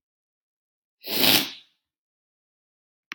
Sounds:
Sniff